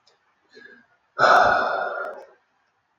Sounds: Sigh